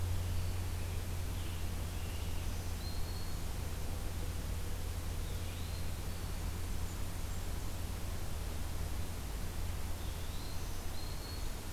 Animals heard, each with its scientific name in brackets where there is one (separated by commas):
Black-throated Green Warbler (Setophaga virens), Blackburnian Warbler (Setophaga fusca), Scarlet Tanager (Piranga olivacea), Eastern Wood-Pewee (Contopus virens)